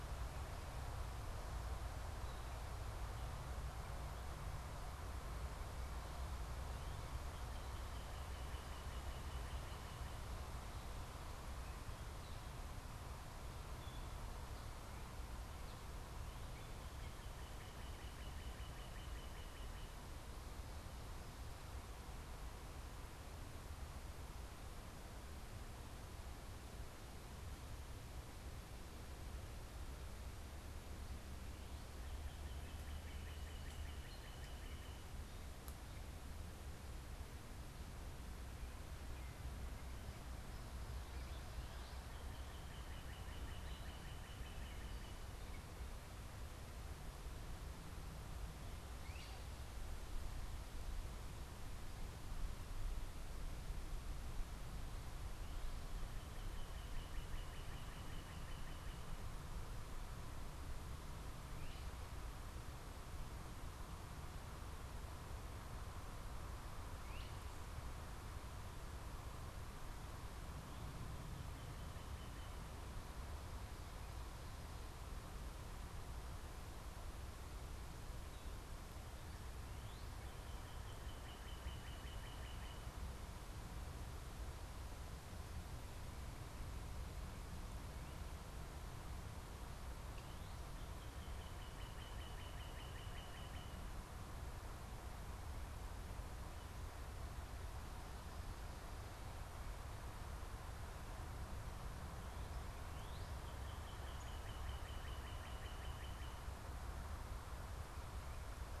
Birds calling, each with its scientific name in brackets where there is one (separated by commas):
Great Crested Flycatcher (Myiarchus crinitus), Northern Cardinal (Cardinalis cardinalis), Gray Catbird (Dumetella carolinensis)